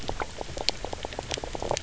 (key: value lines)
label: biophony, knock croak
recorder: SoundTrap 300